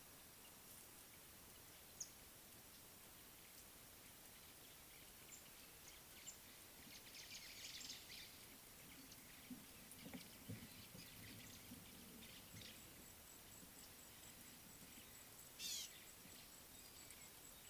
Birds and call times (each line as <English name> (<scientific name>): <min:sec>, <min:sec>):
White-browed Sparrow-Weaver (Plocepasser mahali): 0:07.6
Eastern Violet-backed Sunbird (Anthreptes orientalis): 0:15.7